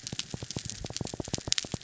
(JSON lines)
{"label": "biophony", "recorder": "SoundTrap 300"}